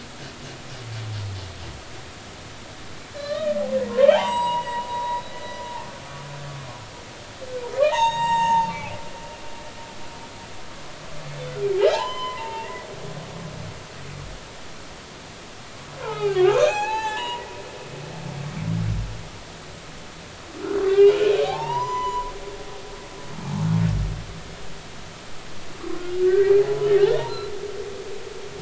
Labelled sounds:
3.2	5.6	humpback whale, 0.80 to 7.8 kHz
7.8	8.7	humpback whale, 0.80 to 7.6 kHz
11.8	12.7	humpback whale, 0.80 to 5.2 kHz
16.0	18.5	humpback whale, 0.80 to 6.9 kHz
20.8	22.3	humpback whale, 0.80 to 7.1 kHz
26.2	27.5	humpback whale, 0.80 to 4.2 kHz

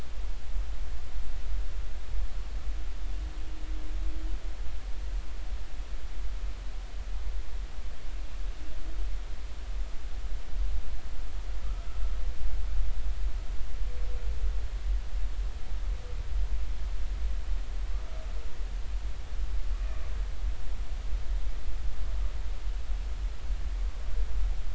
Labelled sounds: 19.7	20.1	humpback whale, 2.3 to 2.5 kHz

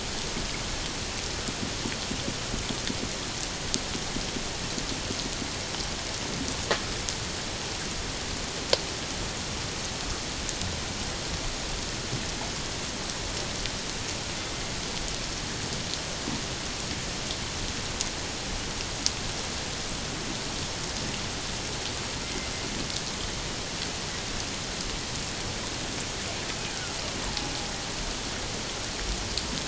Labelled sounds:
22.2	22.5	killer whale, 2.0 to 2.1 kHz
27.2	27.5	killer whale, Bigg's (transient), 0.78 to 1.0 kHz

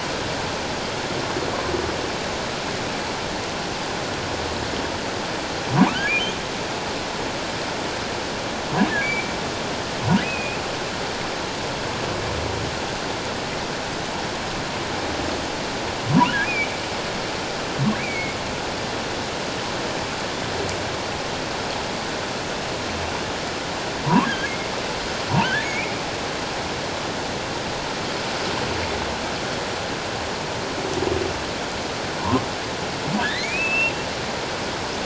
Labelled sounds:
9.0	9.3	humpback whale, 2.1 to 2.5 kHz
10.2	10.6	humpback whale, 2.4 to 2.7 kHz
16.4	16.7	humpback whale, 2.2 to 2.5 kHz
18.0	18.4	humpback whale, 2.1 to 2.5 kHz
24.2	24.7	humpback whale, 1.5 to 2.2 kHz
25.6	25.9	humpback whale, 2.1 to 2.6 kHz
33.2	33.9	humpback whale, 1.4 to 4.2 kHz

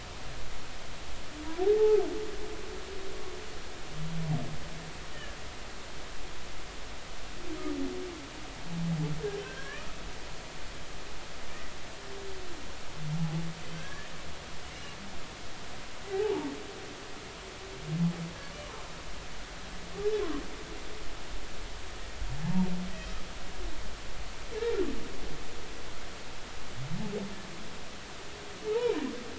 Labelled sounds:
1.6	2.0	humpback whale, 0.80 to 0.93 kHz
9.4	9.9	humpback whale, 1.0 to 1.9 kHz
13.7	14.1	humpback whale, 1.5 to 1.8 kHz
14.7	15.0	humpback whale, 2.7 to 2.9 kHz
16.1	16.5	humpback whale, 0.80 to 0.99 kHz
22.4	22.7	humpback whale, 0.80 to 0.99 kHz

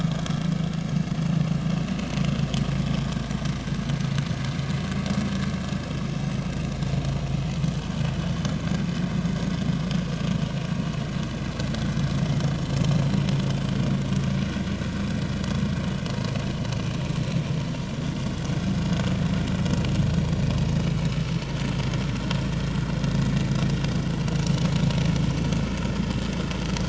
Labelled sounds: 20.0	20.3	vessel noise, 5.5 to 5.8 kHz

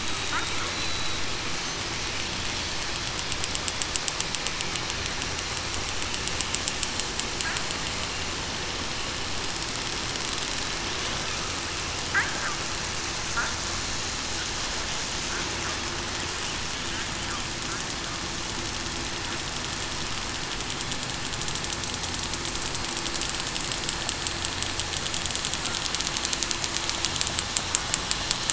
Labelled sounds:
0.7	1.1	killer whale, southern resident, 3.9 to 4.0 kHz

